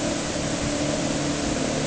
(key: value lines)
label: anthrophony, boat engine
recorder: HydroMoth